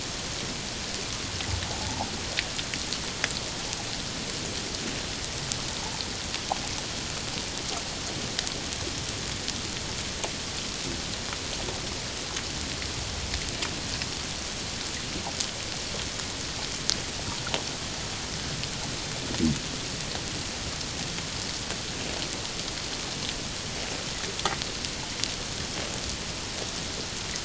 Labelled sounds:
1.8	2.1	water noise, 0.78 to 1.0 kHz

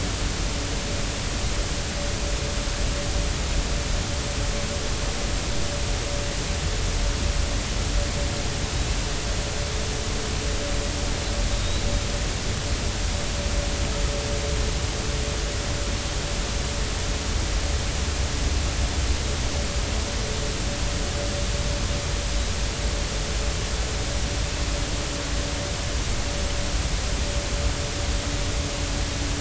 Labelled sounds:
11.6	11.9	killer whale, 3.6 to 4.0 kHz

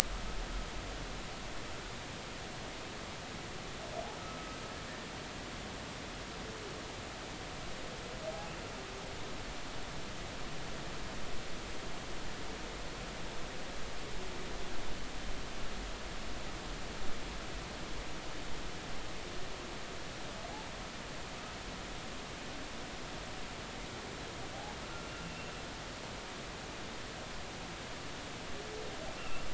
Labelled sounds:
25.2	25.5	humpback whale, 2.6 to 2.8 kHz
29.2	29.5	humpback whale, 1.3 to 2.8 kHz

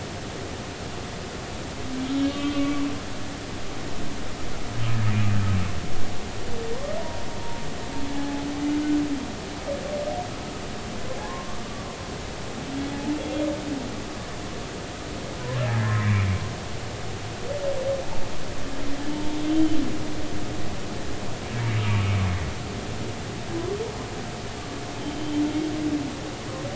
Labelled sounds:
2.1	2.9	humpback whale, 0.96 to 3.4 kHz
7.0	8.5	humpback whale, 0.80 to 0.99 kHz
11.2	11.7	humpback whale, 0.93 to 1.2 kHz
15.7	16.3	humpback whale, 1.6 to 2.5 kHz
19.1	19.4	humpback whale, 0.86 to 0.96 kHz
25.0	25.3	humpback whale, 3.0 to 3.2 kHz

